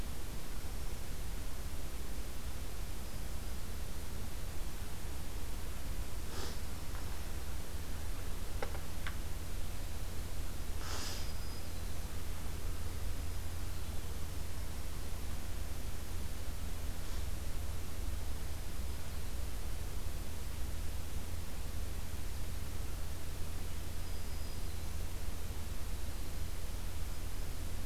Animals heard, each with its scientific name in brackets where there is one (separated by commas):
Black-throated Green Warbler (Setophaga virens)